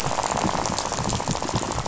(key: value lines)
label: biophony, rattle
recorder: SoundTrap 500